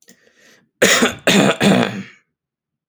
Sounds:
Throat clearing